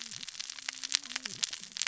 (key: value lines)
label: biophony, cascading saw
recorder: SoundTrap 600 or HydroMoth